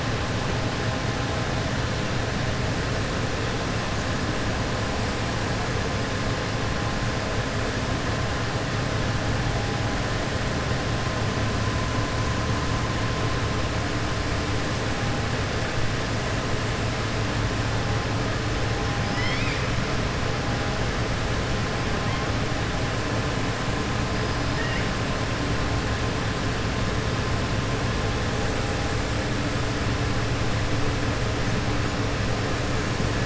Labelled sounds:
19.0	19.7	killer whale, southern resident, 1.3 to 5.4 kHz

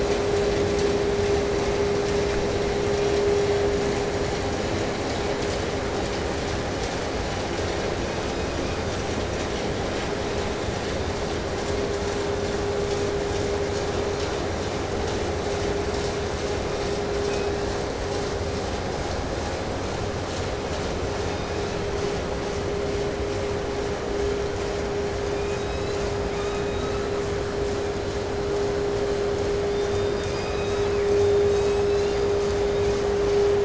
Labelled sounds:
7.9	9.0	killer whale, 1.6 to 5.6 kHz
10.1	11.3	killer whale, 3.3 to 4.1 kHz
16.5	17.7	killer whale, 2.0 to 6.0 kHz
21.1	22.3	killer whale, 2.1 to 5.9 kHz
25.1	27.3	killer whale, 0.80 to 8.0 kHz
29.4	32.5	killer whale, 0.88 to 8.0 kHz

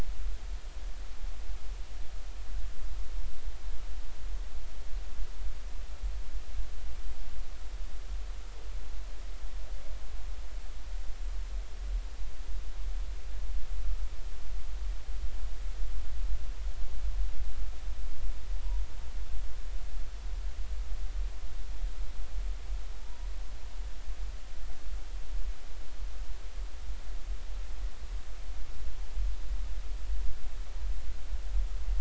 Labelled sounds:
23.0	23.3	humpback whale, 0.86 to 1.0 kHz

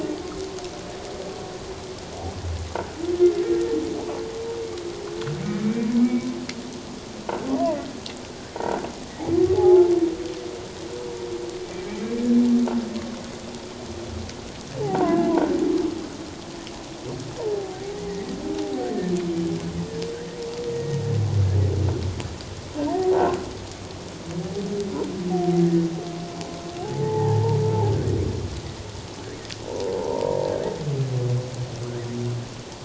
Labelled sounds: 5.6	6.3	humpback whale, 2.2 to 2.4 kHz
8.6	8.9	humpback whale, 1.3 to 1.6 kHz
9.6	9.9	croaking sound likely from a nearby submerged object, 0.78 to 0.91 kHz
14.8	15.3	humpback whale, 0.78 to 1.7 kHz
17.6	18.9	humpback whale, 0.78 to 2.1 kHz
20.7	21.0	humpback whale, 1.8 to 1.9 kHz
26.8	27.6	humpback whale, 0.78 to 2.0 kHz
30.0	30.4	humpback whale, 0.88 to 1.0 kHz

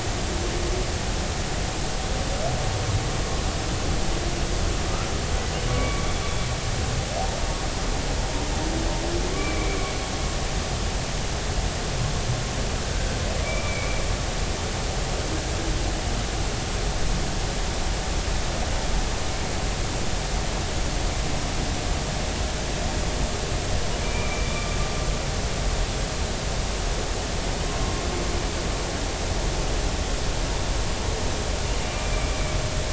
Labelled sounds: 5.7	6.1	humpback whale, 1.1 to 2.3 kHz
9.3	9.9	humpback whale, 2.0 to 2.5 kHz
13.4	14.0	humpback whale, 2.2 to 2.4 kHz
24.0	24.7	humpback whale, 2.2 to 2.5 kHz

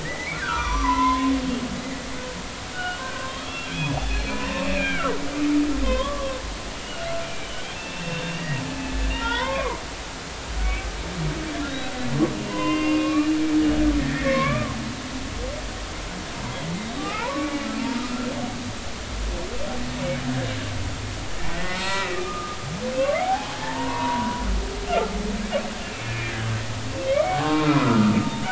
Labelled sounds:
0.0	1.3	humpback whale, 0.90 to 6.0 kHz
2.7	5.1	humpback whale, 1.0 to 4.4 kHz
5.8	6.4	humpback whale, 0.96 to 3.5 kHz
6.8	7.5	humpback whale, 2.2 to 3.0 kHz
7.8	9.8	humpback whale, 0.83 to 3.7 kHz
11.5	11.8	humpback whale, 1.6 to 1.8 kHz
12.3	14.8	humpback whale, 0.90 to 3.2 kHz
16.7	17.6	humpback whale, 0.80 to 3.9 kHz
18.0	18.3	humpback whale, 1.2 to 1.4 kHz
21.5	22.6	humpback whale, 0.90 to 4.4 kHz
23.0	24.4	humpback whale, 0.80 to 2.0 kHz
25.8	26.5	humpback whale, 1.5 to 2.8 kHz
27.2	28.2	humpback whale, 0.80 to 1.5 kHz

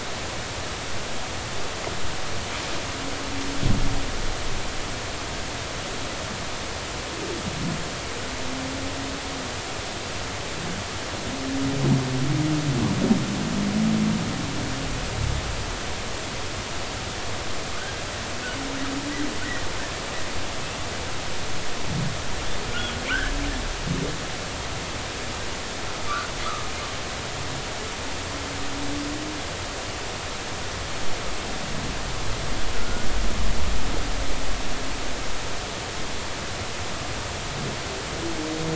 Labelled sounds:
23.1	23.3	humpback whale, 1.3 to 1.8 kHz
32.7	33.1	humpback whale, 1.4 to 1.5 kHz

